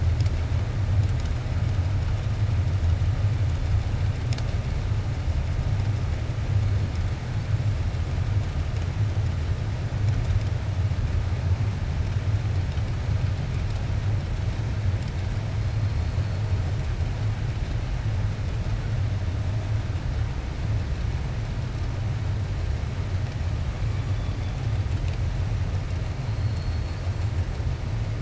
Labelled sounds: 26.3	27.0	killer whale, 4.1 to 4.7 kHz

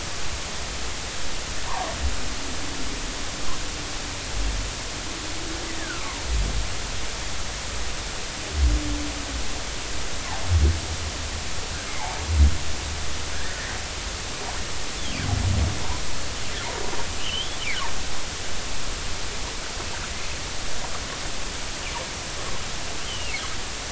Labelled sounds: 5.6	6.2	humpback whale, 0.90 to 2.0 kHz
12.0	12.2	humpback whale, 0.80 to 1.1 kHz
13.3	13.6	humpback whale, 1.5 to 2.0 kHz
17.2	17.6	humpback whale, 2.6 to 3.6 kHz
23.0	23.4	humpback whale, 2.6 to 3.3 kHz

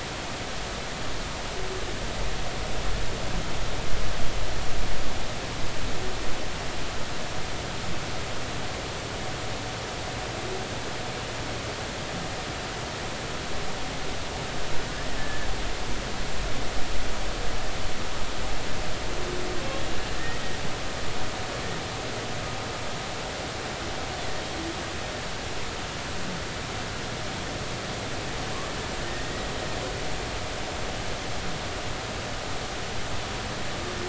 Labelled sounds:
15.2	15.5	humpback whale, 1.6 to 1.8 kHz
29.2	29.5	humpback whale, 1.8 to 2.0 kHz

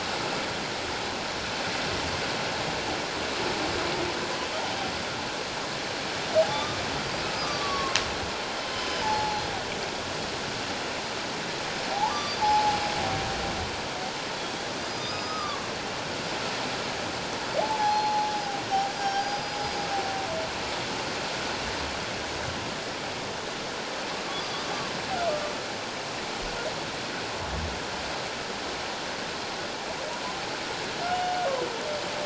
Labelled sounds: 6.5	8.0	humpback whale, 1.0 to 5.1 kHz
8.7	9.5	humpback whale, 0.78 to 5.2 kHz
11.9	12.8	humpback whale, 0.78 to 6.0 kHz
14.8	15.6	humpback whale, 1.1 to 5.2 kHz
17.6	19.8	humpback whale, 0.78 to 5.1 kHz
31.1	31.4	humpback whale, 2.8 to 2.9 kHz

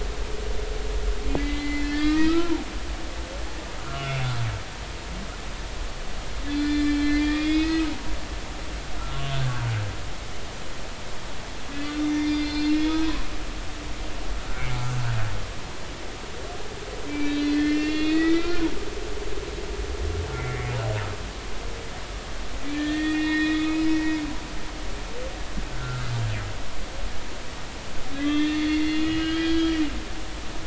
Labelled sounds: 1.4	2.5	humpback whale, 1.2 to 4.6 kHz
3.8	4.3	humpback whale, 1.2 to 2.9 kHz
6.5	7.9	humpback whale, 1.7 to 4.2 kHz
9.0	9.2	humpback whale, 1.3 to 1.4 kHz
11.7	13.2	humpback whale, 1.8 to 5.7 kHz
17.1	18.7	humpback whale, 1.3 to 5.2 kHz
20.3	20.7	humpback whale, 2.0 to 2.3 kHz
22.7	23.9	humpback whale, 1.7 to 4.2 kHz
25.7	26.0	humpback whale, 1.3 to 1.5 kHz
28.1	29.8	humpback whale, 1.2 to 4.4 kHz

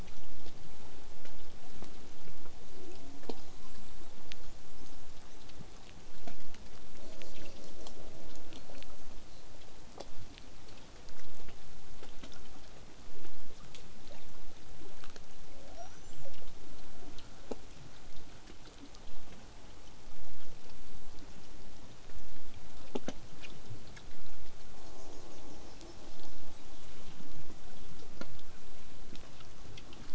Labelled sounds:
2.7	5.4	killer whale, southern resident, call S10, 0.19 to 8.0 kHz
6.9	9.5	killer whale, southern resident, 1.8 to 8.0 kHz
15.5	16.5	killer whale, southern resident, L pod, call S02iii, 0.31 to 8.0 kHz
24.7	27.3	killer whale, southern resident, 1.3 to 7.1 kHz

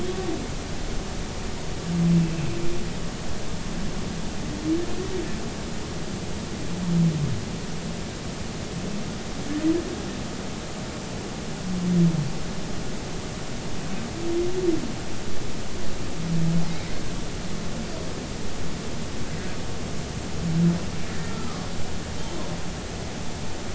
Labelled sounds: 2.2	2.4	humpback whale, 2.5 to 2.7 kHz
21.2	21.7	humpback whale, 1.0 to 1.4 kHz

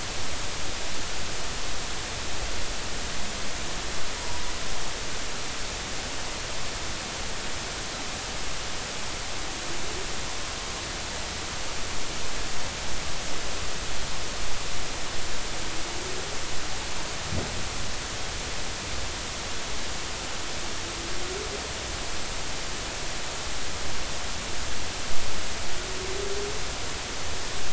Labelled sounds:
4.2	4.5	humpback whale, 0.93 to 1.0 kHz

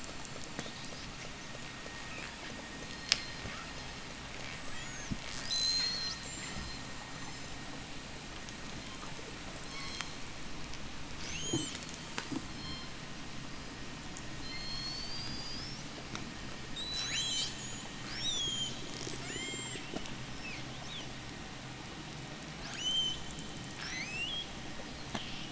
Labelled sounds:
2.8	3.5	killer whale, J pod, 3.4 to 7.6 kHz
4.5	7.7	killer whale, J pod, 1.3 to 8.0 kHz
8.9	10.7	killer whale, J pod, 0.55 to 8.0 kHz
11.2	13.0	killer whale, J pod, 0.40 to 8.0 kHz
14.2	15.9	killer whale, J pod, 1.9 to 8.0 kHz
16.4	20.0	killer whale, J pod, 1.4 to 8.0 kHz
20.2	21.3	killer whale, 1.3 to 6.8 kHz
22.6	24.5	killer whale, J pod, 0.37 to 8.0 kHz

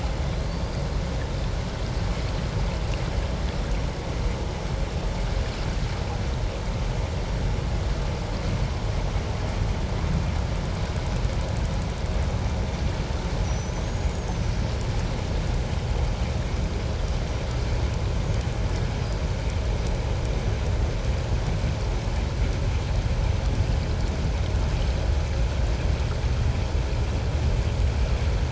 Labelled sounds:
13.4	14.5	killer whale, 5.7 to 6.9 kHz
19.0	19.2	killer whale, 4.7 to 5.0 kHz

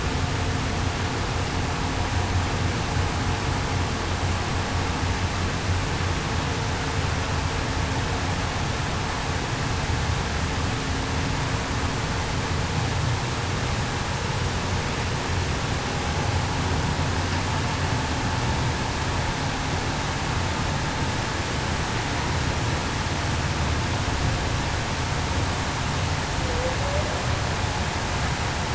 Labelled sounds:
26.4	26.7	humpback whale, 0.47 to 0.56 kHz

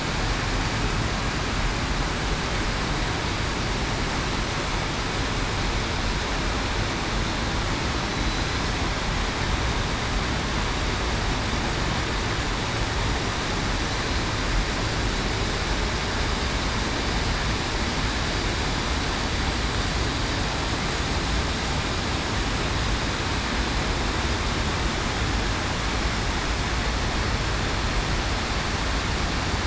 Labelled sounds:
8.1	8.4	killer whale, southern resident, 3.9 to 4.0 kHz

